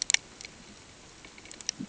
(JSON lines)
{"label": "ambient", "recorder": "HydroMoth"}